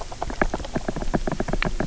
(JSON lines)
{"label": "biophony", "recorder": "SoundTrap 300"}